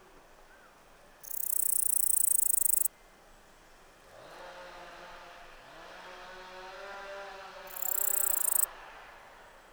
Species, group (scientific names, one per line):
Pholidoptera littoralis
Orthoptera